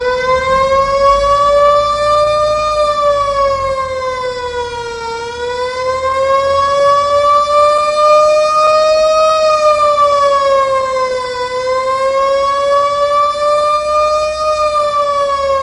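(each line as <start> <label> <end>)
0.0 An emergency vehicle drives away with a loud, continuous alarm. 15.6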